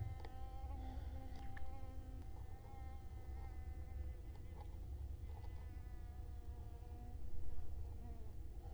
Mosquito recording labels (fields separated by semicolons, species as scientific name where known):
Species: Culex quinquefasciatus; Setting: cup